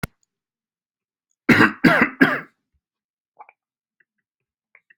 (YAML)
expert_labels:
- quality: good
  cough_type: dry
  dyspnea: false
  wheezing: true
  stridor: false
  choking: false
  congestion: false
  nothing: false
  diagnosis: obstructive lung disease
  severity: mild
age: 36
gender: male
respiratory_condition: true
fever_muscle_pain: false
status: healthy